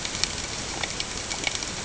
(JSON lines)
{"label": "ambient", "recorder": "HydroMoth"}